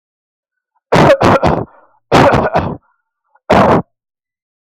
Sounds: Cough